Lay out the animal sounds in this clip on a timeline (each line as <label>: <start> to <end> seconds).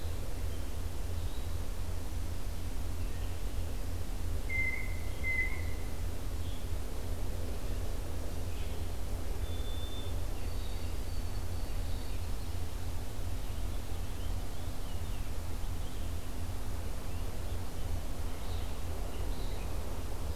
Red-eyed Vireo (Vireo olivaceus): 0.3 to 20.4 seconds
Blue Jay (Cyanocitta cristata): 4.4 to 5.9 seconds
White-throated Sparrow (Zonotrichia albicollis): 9.3 to 12.4 seconds
Purple Finch (Haemorhous purpureus): 13.2 to 17.9 seconds